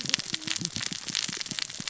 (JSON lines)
{"label": "biophony, cascading saw", "recorder": "SoundTrap 600 or HydroMoth"}